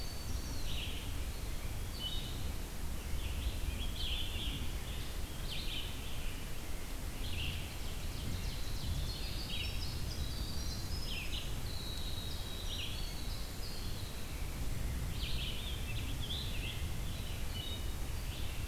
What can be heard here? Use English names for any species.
Winter Wren, Red-eyed Vireo, Eastern Wood-Pewee, Scarlet Tanager, Ovenbird